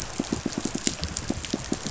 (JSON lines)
{"label": "biophony, pulse", "recorder": "SoundTrap 500"}